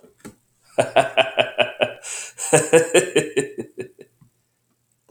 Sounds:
Laughter